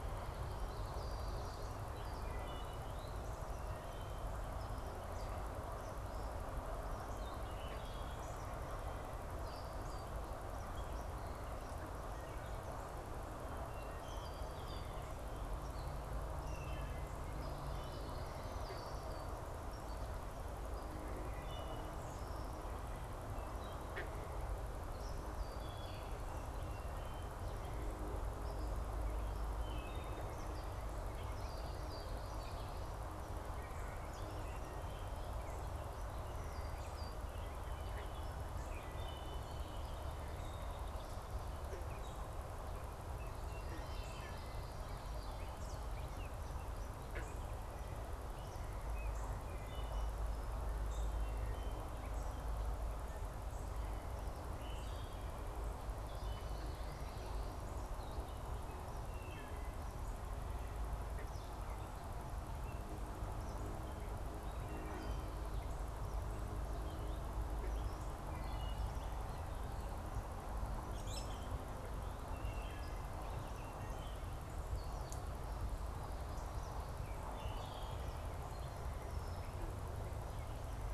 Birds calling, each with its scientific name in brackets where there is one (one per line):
Wood Thrush (Hylocichla mustelina)
Gray Catbird (Dumetella carolinensis)
Red-winged Blackbird (Agelaius phoeniceus)
unidentified bird
Common Yellowthroat (Geothlypis trichas)
American Robin (Turdus migratorius)